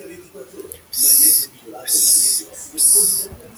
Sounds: Throat clearing